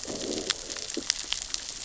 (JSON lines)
{"label": "biophony, growl", "recorder": "SoundTrap 600 or HydroMoth"}